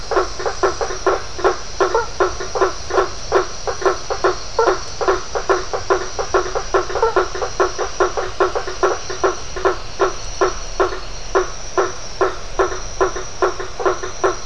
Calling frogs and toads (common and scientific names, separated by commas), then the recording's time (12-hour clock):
blacksmith tree frog (Boana faber)
7:15pm